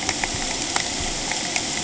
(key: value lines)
label: ambient
recorder: HydroMoth